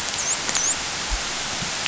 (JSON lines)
{"label": "biophony, dolphin", "recorder": "SoundTrap 500"}